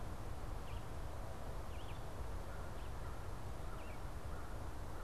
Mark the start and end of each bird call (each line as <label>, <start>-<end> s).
Red-eyed Vireo (Vireo olivaceus), 0.0-4.1 s
American Crow (Corvus brachyrhynchos), 0.0-4.6 s